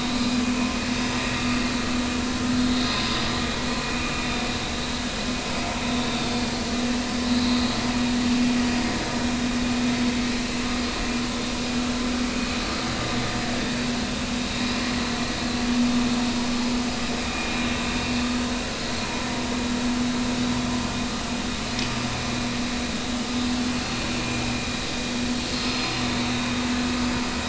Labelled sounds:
2.6	3.3	vessel noise, 3.6 to 4.9 kHz
3.8	4.5	vessel noise, 2.4 to 3.7 kHz
7.2	7.5	vessel noise, 3.8 to 4.2 kHz
17.3	17.5	vessel noise, 2.4 to 2.5 kHz
25.7	26.0	vessel noise, 4.8 to 5.1 kHz

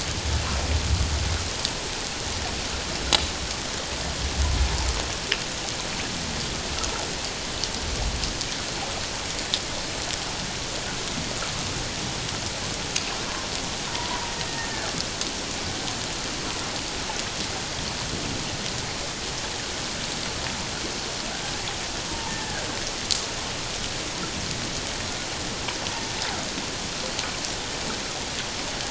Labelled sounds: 13.9	14.9	killer whale, Bigg's (transient), 0.84 to 1.9 kHz
22.1	22.6	killer whale, Bigg's (transient), 0.81 to 1.8 kHz

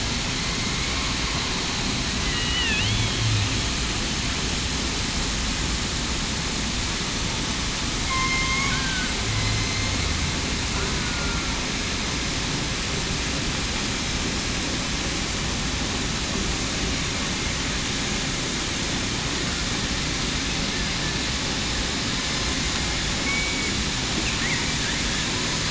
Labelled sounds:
2.2	2.8	killer whale, southern resident, 1.7 to 2.0 kHz
8.0	8.7	killer whale, southern resident, 1.0 to 2.2 kHz
10.9	11.5	killer whale, southern resident, 1.3 to 1.5 kHz
23.2	23.7	killer whale, southern resident, 2.2 to 2.3 kHz

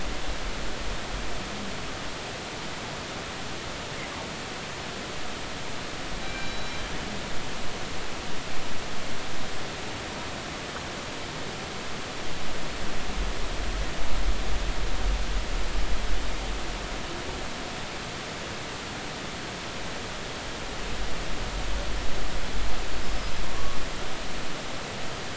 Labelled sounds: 6.2	6.8	killer whale, northern resident, G clan, call N24ii, 2.3 to 4.0 kHz
23.5	23.8	killer whale, northern resident, G clan, call N23i, 0.99 to 1.2 kHz

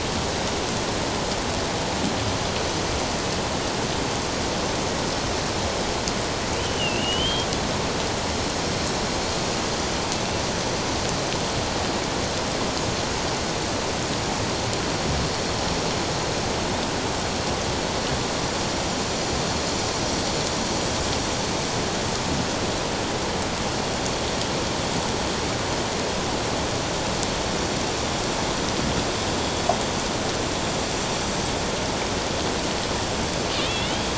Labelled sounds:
6.6	7.5	killer whale, Bigg's (transient), 2.6 to 3.3 kHz
33.5	34.0	killer whale, Bigg's (transient), 2.3 to 3.8 kHz

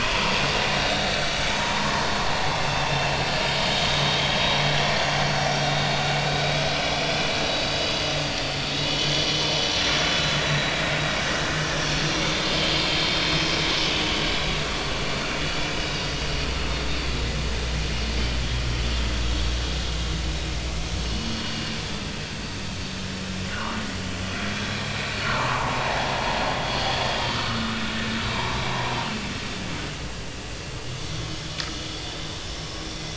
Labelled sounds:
0.7	1.9	vessel noise, 0.86 to 3.9 kHz
3.4	4.6	vessel noise, 3.6 to 3.8 kHz
6.2	6.6	vessel noise, 3.8 to 4.0 kHz
7.1	9.2	vessel noise, 2.8 to 5.2 kHz
9.5	10.9	vessel noise, 3.8 to 6.0 kHz
12.7	13.5	vessel noise, 3.1 to 4.3 kHz
13.9	14.6	vessel noise, 2.9 to 4.0 kHz
14.9	15.1	vessel noise, 2.8 to 2.9 kHz
15.8	16.1	vessel noise, 3.7 to 3.9 kHz
18.6	18.9	vessel noise, 3.0 to 3.3 kHz
21.1	21.8	vessel noise, 2.8 to 3.0 kHz
23.5	23.8	vessel noise, 2.7 to 2.9 kHz
24.9	26.1	vessel noise, 0.80 to 4.0 kHz
27.2	27.7	vessel noise, 1.1 to 3.3 kHz

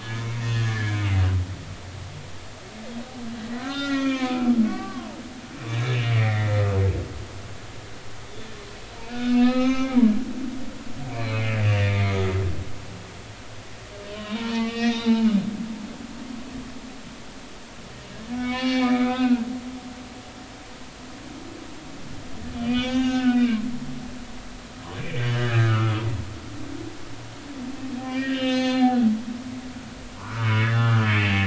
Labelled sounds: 0.0	1.1	humpback whale, 1.4 to 3.4 kHz
3.5	6.6	humpback whale, 0.86 to 5.4 kHz
9.1	10.0	humpback whale, 0.80 to 6.4 kHz
11.1	11.6	humpback whale, 2.0 to 2.7 kHz
11.9	12.3	humpback whale, 2.0 to 3.6 kHz
14.0	15.4	humpback whale, 0.83 to 5.8 kHz
18.3	19.4	humpback whale, 0.80 to 4.4 kHz
22.6	23.6	humpback whale, 0.80 to 6.3 kHz
25.0	26.0	humpback whale, 1.1 to 3.0 kHz
28.1	29.1	humpback whale, 0.80 to 6.5 kHz
30.2	31.4	humpback whale, 0.86 to 3.6 kHz

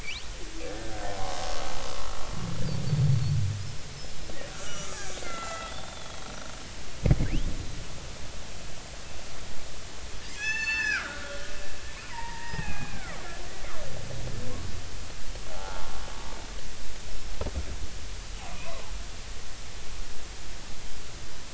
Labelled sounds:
0.6	1.4	killer whale, Bigg's (transient), 0.96 to 1.8 kHz
2.9	3.1	killer whale, Bigg's (transient), 4.4 to 4.6 kHz
4.5	6.2	killer whale, Bigg's (transient), 1.2 to 6.0 kHz
10.4	11.5	killer whale, Bigg's (transient), 1.2 to 7.2 kHz
12.1	13.2	killer whale, Bigg's (transient), 0.80 to 2.8 kHz
15.5	15.9	killer whale, Bigg's (transient), 0.80 to 1.5 kHz

